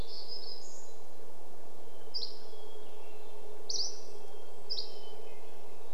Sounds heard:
warbler song, airplane, Red-breasted Nuthatch song, Dusky Flycatcher song, Hermit Thrush song

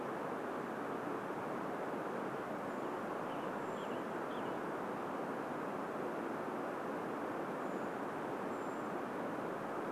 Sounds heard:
Western Tanager song, Brown Creeper call

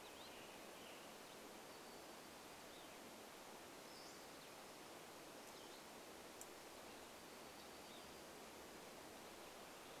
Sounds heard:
Western Tanager song, Hutton's Vireo song, warbler song

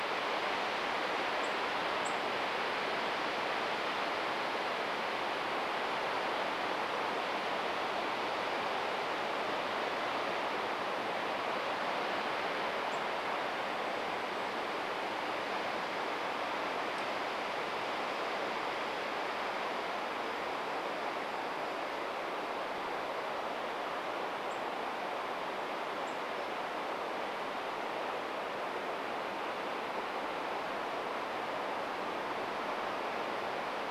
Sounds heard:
Golden-crowned Kinglet song, unidentified bird chip note

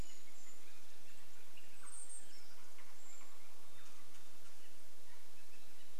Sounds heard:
Golden-crowned Kinglet call, Canada Jay call, Pacific-slope Flycatcher call

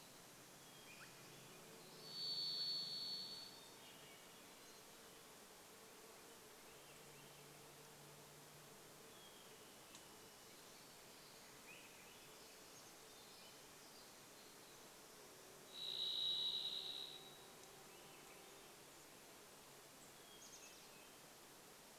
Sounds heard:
Swainson's Thrush call, Hermit Thrush song, Varied Thrush song, Swainson's Thrush song, Chestnut-backed Chickadee call, insect buzz

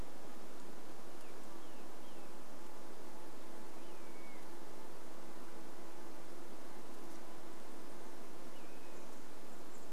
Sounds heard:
Chestnut-backed Chickadee call, insect buzz, Say's Phoebe song

